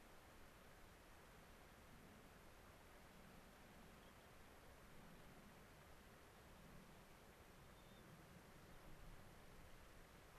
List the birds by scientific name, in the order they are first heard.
Zonotrichia leucophrys